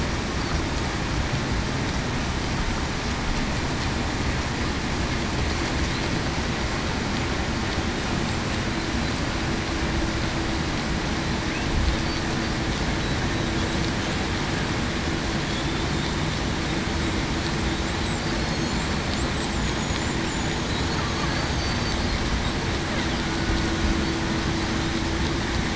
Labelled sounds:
21.3	21.9	killer whale, Bigg's (transient), 4.5 to 4.7 kHz

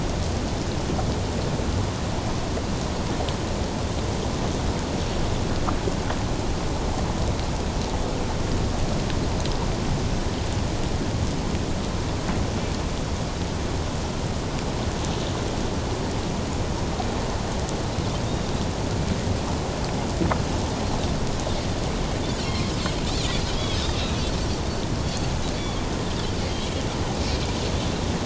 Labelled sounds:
22.5	22.7	Pacific white-sided dolphin, 1.9 to 2.3 kHz
23.5	24.0	Pacific white-sided dolphin, 3.1 to 3.9 kHz
25.0	25.3	Pacific white-sided dolphin, 4.5 to 4.6 kHz

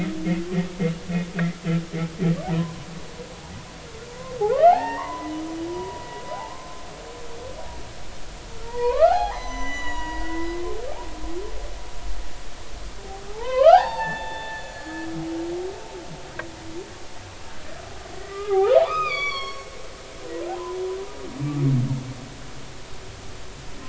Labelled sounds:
2.4	2.9	humpback whale, 0.80 to 1.2 kHz
4.1	5.3	humpback whale, 0.80 to 5.6 kHz
5.7	6.5	humpback whale, 0.80 to 1.1 kHz
8.6	10.7	humpback whale, 0.80 to 7.0 kHz
13.3	15.1	humpback whale, 0.80 to 4.7 kHz
18.3	19.7	humpback whale, 0.80 to 7.0 kHz
20.5	20.8	humpback whale, 0.80 to 1.1 kHz

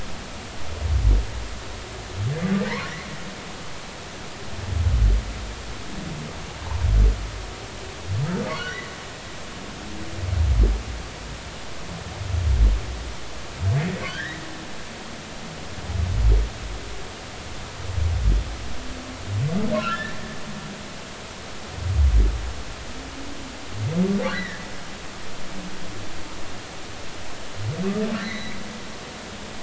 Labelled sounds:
8.5	8.8	humpback whale, 1.4 to 1.6 kHz
14.0	14.4	humpback whale, 1.4 to 3.3 kHz
19.7	20.1	humpback whale, 1.2 to 3.2 kHz
24.3	24.7	humpback whale, 1.6 to 2.0 kHz
28.2	28.6	humpback whale, 1.7 to 4.3 kHz

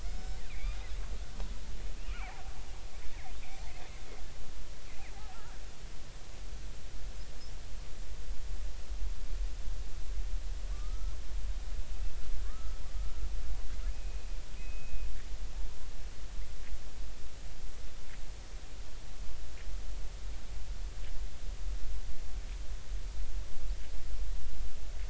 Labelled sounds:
0.1	0.8	killer whale, Bigg's (transient), 1.9 to 5.4 kHz
2.1	2.5	killer whale, Bigg's (transient), 0.80 to 2.7 kHz
5.1	5.4	killer whale, Bigg's (transient), 0.80 to 0.93 kHz
10.7	11.2	killer whale, Bigg's (transient), 1.1 to 1.4 kHz
12.4	12.8	killer whale, Bigg's (transient), 1.1 to 1.4 kHz
13.9	15.1	killer whale, Bigg's (transient), 2.4 to 2.6 kHz

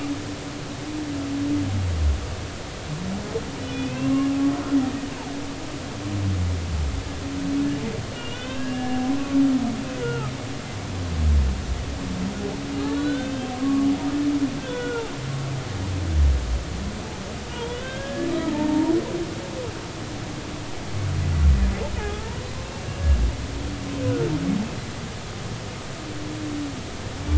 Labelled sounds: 3.6	4.3	humpback whale, 0.99 to 3.6 kHz
5.1	5.4	humpback whale, 2.5 to 2.8 kHz
8.1	9.1	humpback whale, 1.4 to 3.8 kHz
10.0	10.3	humpback whale, 0.83 to 3.0 kHz
12.9	13.9	humpback whale, 1.0 to 3.7 kHz
14.6	15.0	humpback whale, 1.3 to 3.5 kHz
17.5	18.9	humpback whale, 0.83 to 3.7 kHz
22.0	22.4	humpback whale, 0.80 to 0.99 kHz

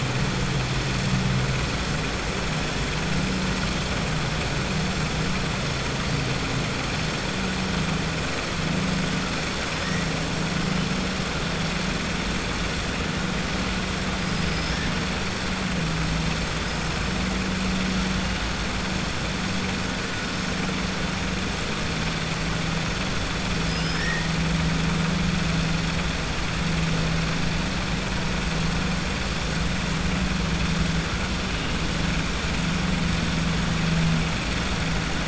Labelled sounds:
14.2	14.8	killer whale, southern resident, 4.9 to 5.6 kHz
23.6	24.3	killer whale, southern resident, 0.99 to 5.8 kHz

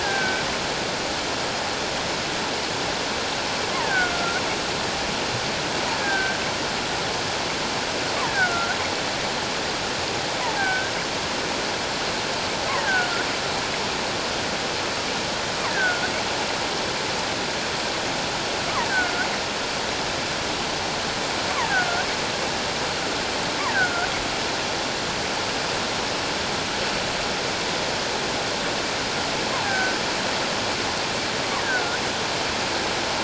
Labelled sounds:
0.0	0.4	killer whale, offshore, call OFF17, 1.5 to 2.4 kHz
3.7	4.4	killer whale, offshore, call OFF17, 0.78 to 1.8 kHz
6.0	6.4	killer whale, offshore, call OFF17, 1.5 to 1.7 kHz
8.2	8.8	killer whale, offshore, call OFF17, 1.3 to 2.0 kHz
10.4	10.9	killer whale, offshore, call OFF17, 0.78 to 1.7 kHz
12.7	13.3	killer whale, offshore, call OFF17, 0.78 to 1.7 kHz
15.7	16.1	killer whale, offshore, call OFF17, 1.3 to 1.8 kHz
18.9	19.3	killer whale, offshore, call OFF17, 1.3 to 1.8 kHz
21.6	21.9	killer whale, offshore, call OFF17, 1.4 to 2.3 kHz
23.7	24.1	killer whale, offshore, call OFF17, 1.3 to 1.9 kHz
29.6	30.0	killer whale, offshore, call OFF17, 1.5 to 1.7 kHz
31.6	32.0	killer whale, offshore, call OFF17, 1.3 to 1.8 kHz

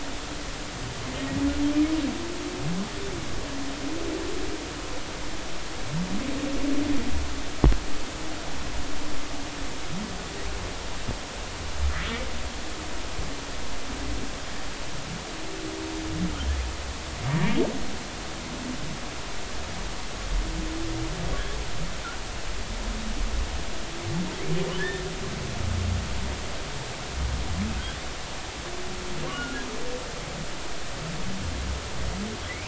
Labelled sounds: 24.8	25.0	humpback whale, 1.6 to 1.9 kHz
29.3	29.6	humpback whale, 1.3 to 1.5 kHz

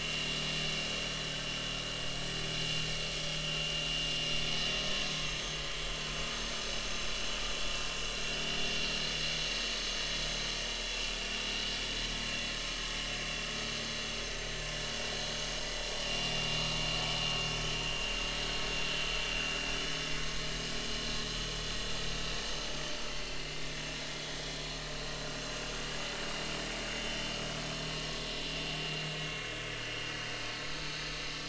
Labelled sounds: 4.7	6.0	vessel noise, 3.1 to 6.5 kHz
8.6	8.9	vessel noise, 6.4 to 6.5 kHz
13.8	14.2	vessel noise, 6.2 to 6.4 kHz
16.4	18.1	vessel noise, 3.2 to 6.6 kHz
21.0	21.3	vessel noise, 3.7 to 3.9 kHz
22.4	23.7	vessel noise, 2.0 to 6.4 kHz
26.2	27.3	vessel noise, 3.0 to 7.6 kHz
29.2	29.5	vessel noise, 2.1 to 6.5 kHz
30.7	31.2	vessel noise, 6.3 to 6.4 kHz

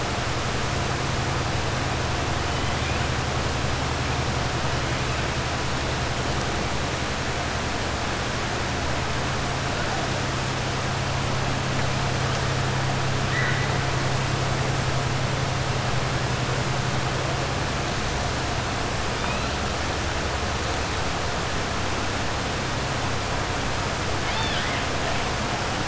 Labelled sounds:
13.2	13.7	killer whale, 1.5 to 3.0 kHz
24.2	24.8	killer whale, 0.91 to 5.3 kHz

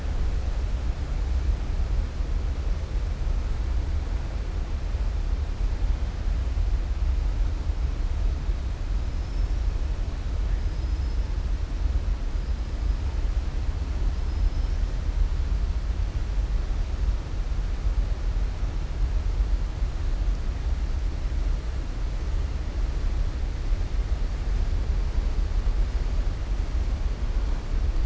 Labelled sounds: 9.1	9.6	killer whale, southern resident, 5.2 to 5.9 kHz
10.6	11.2	killer whale, southern resident, 4.5 to 5.5 kHz

